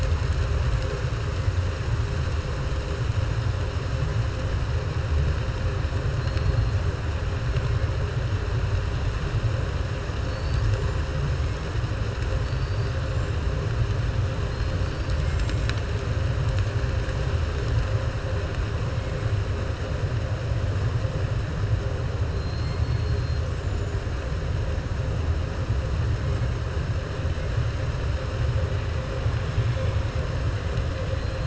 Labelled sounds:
12.4	12.9	killer whale, southern resident, 4.4 to 5.1 kHz
22.3	24.0	killer whale, southern resident, 3.3 to 8.0 kHz

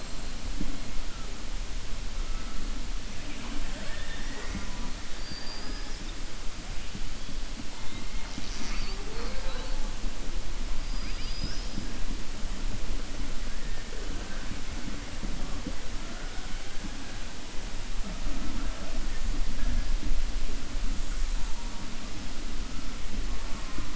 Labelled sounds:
5.1	6.1	killer whale, southern resident, 4.6 to 5.8 kHz

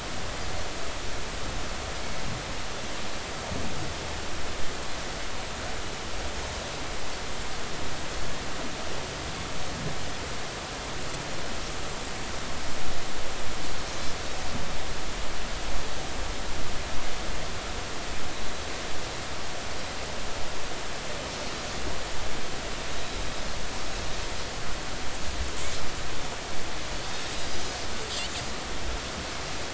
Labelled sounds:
22.9	23.2	Pacific white-sided dolphin, 3.8 to 4.0 kHz

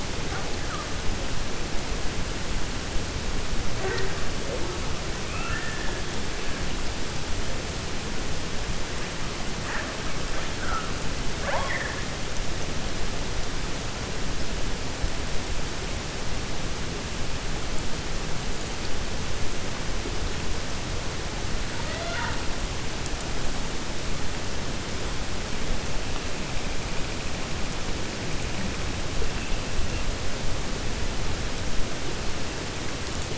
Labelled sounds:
5.2	5.9	killer whale, 0.90 to 2.8 kHz
11.3	12.0	killer whale, 0.54 to 3.3 kHz
21.7	22.4	killer whale, 0.63 to 4.2 kHz

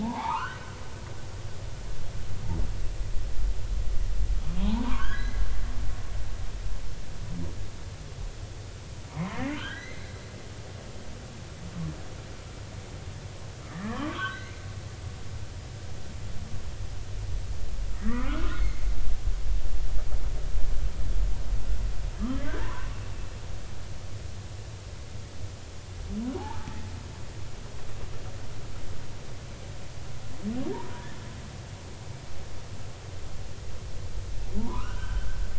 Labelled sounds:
0.0	0.8	humpback whale, 0.80 to 3.1 kHz
4.6	5.4	humpback whale, 0.80 to 4.2 kHz
9.1	10.1	humpback whale, 0.93 to 6.3 kHz
13.9	14.6	humpback whale, 0.96 to 2.2 kHz
18.1	19.2	humpback whale, 1.1 to 2.3 kHz
22.5	22.9	humpback whale, 0.86 to 1.9 kHz
26.4	26.9	humpback whale, 0.80 to 2.0 kHz
30.7	31.1	humpback whale, 0.86 to 1.1 kHz
34.6	35.4	humpback whale, 0.83 to 3.2 kHz

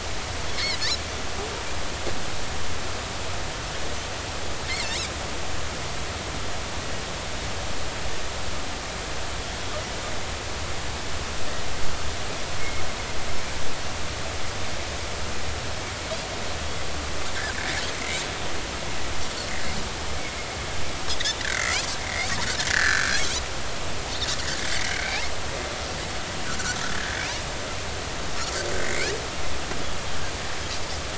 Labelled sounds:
0.5	0.8	Pacific white-sided dolphin, 2.0 to 4.6 kHz
21.4	22.3	Pacific white-sided dolphin, 1.3 to 2.8 kHz
22.7	23.1	Pacific white-sided dolphin, 1.3 to 4.2 kHz
24.4	25.3	Pacific white-sided dolphin, 1.4 to 2.8 kHz
26.9	27.2	Pacific white-sided dolphin, 1.5 to 1.8 kHz
28.8	29.1	Pacific white-sided dolphin, 1.7 to 2.6 kHz

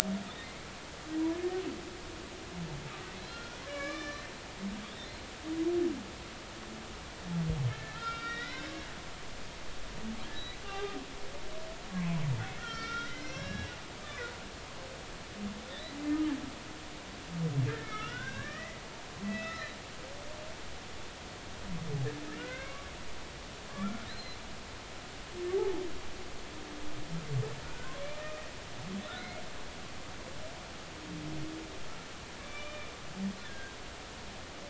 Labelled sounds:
3.2	5.1	humpback whale, 1.0 to 5.4 kHz
7.7	11.0	humpback whale, 0.80 to 5.2 kHz
11.9	13.7	humpback whale, 0.96 to 6.0 kHz
15.7	16.0	humpback whale, 1.7 to 2.0 kHz
17.7	18.8	humpback whale, 1.1 to 5.7 kHz
19.2	19.7	humpback whale, 1.7 to 5.3 kHz
22.3	22.9	humpback whale, 1.0 to 2.7 kHz
23.7	24.4	humpback whale, 1.1 to 4.2 kHz
25.5	25.8	humpback whale, 0.80 to 0.93 kHz
27.6	28.4	humpback whale, 1.2 to 2.6 kHz
32.4	32.9	humpback whale, 1.1 to 3.6 kHz
33.4	33.8	humpback whale, 1.5 to 1.8 kHz

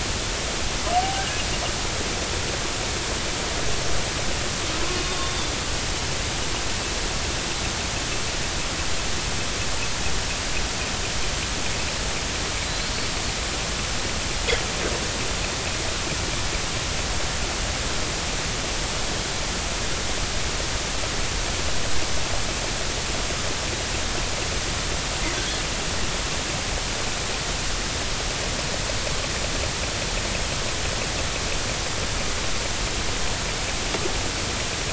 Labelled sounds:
1.0	1.3	killer whale, northern resident, G clan, 0.80 to 0.83 kHz
4.8	5.3	killer whale, northern resident, G clan, 0.99 to 1.2 kHz
12.7	12.9	killer whale, northern resident, G clan, 3.9 to 4.4 kHz
25.4	25.6	killer whale, northern resident, G clan, 1.5 to 1.8 kHz

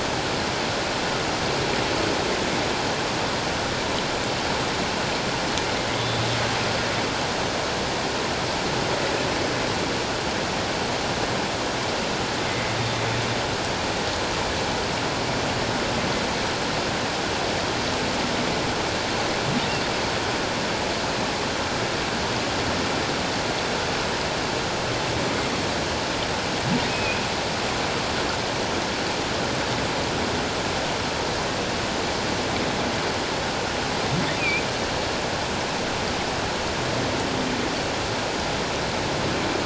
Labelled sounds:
6.0	6.2	humpback whale, 3.3 to 3.5 kHz
12.5	12.7	humpback whale, 2.0 to 2.2 kHz
26.9	27.2	humpback whale, 2.4 to 2.6 kHz
34.4	34.7	humpback whale, 2.2 to 2.7 kHz

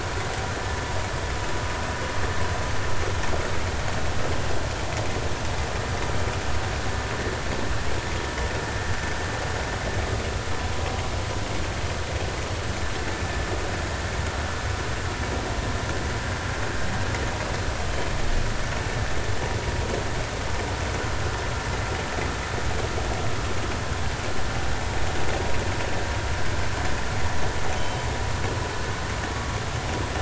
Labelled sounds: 27.7	28.0	killer whale, northern resident, G clan, call N24ii, 3.0 to 3.2 kHz

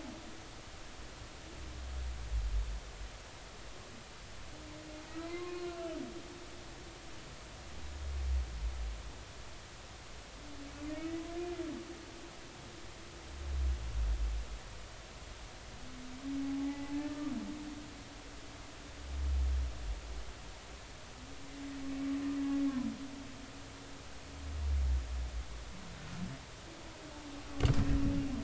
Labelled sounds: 5.3	5.7	humpback whale, 1.0 to 2.1 kHz
16.4	17.3	humpback whale, 0.80 to 2.1 kHz

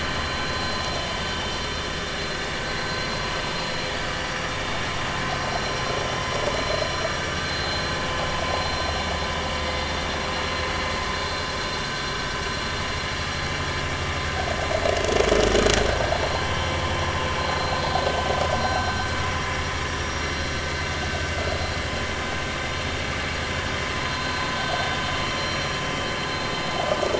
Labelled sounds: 1.3	1.6	vessel noise, 3.5 to 3.6 kHz
9.6	9.9	vessel noise, 2.0 to 2.1 kHz
16.4	16.8	vessel noise, 3.0 to 3.1 kHz
17.5	17.8	vessel noise, 4.0 to 4.2 kHz

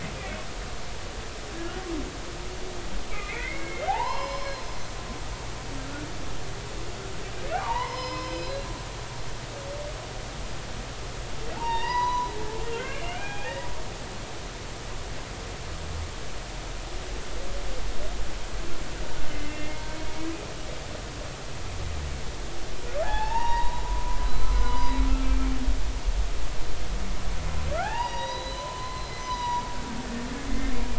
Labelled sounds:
3.1	4.6	humpback whale, 0.80 to 5.4 kHz
7.5	8.7	humpback whale, 0.80 to 5.3 kHz
11.6	12.3	humpback whale, 0.83 to 6.0 kHz
12.6	13.5	humpback whale, 0.80 to 3.3 kHz
19.3	19.8	humpback whale, 2.0 to 2.8 kHz
23.0	25.6	humpback whale, 0.80 to 6.0 kHz
27.7	29.6	humpback whale, 0.80 to 6.1 kHz

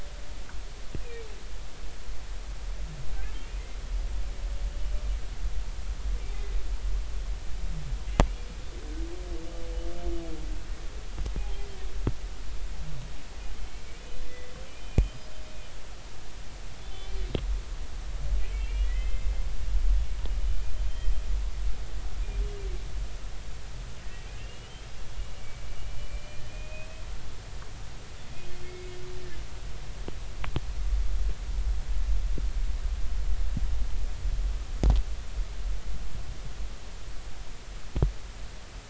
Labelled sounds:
1.0	1.3	humpback whale, 2.2 to 2.6 kHz
14.0	15.1	humpback whale, 2.3 to 2.5 kHz
16.8	17.2	humpback whale, 3.0 to 3.6 kHz
18.5	19.3	humpback whale, 1.9 to 3.2 kHz
24.0	24.7	humpback whale, 1.8 to 3.0 kHz
25.4	27.0	humpback whale, 2.2 to 3.1 kHz
28.6	29.0	humpback whale, 2.1 to 2.2 kHz

